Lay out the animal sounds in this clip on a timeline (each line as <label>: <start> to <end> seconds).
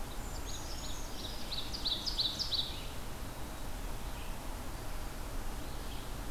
Red-eyed Vireo (Vireo olivaceus): 0.0 to 6.3 seconds
Ovenbird (Seiurus aurocapilla): 0.0 to 2.7 seconds
Brown Creeper (Certhia americana): 0.1 to 1.9 seconds